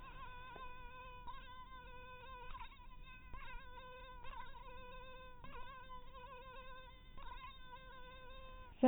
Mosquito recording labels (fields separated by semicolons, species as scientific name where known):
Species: mosquito; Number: one; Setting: cup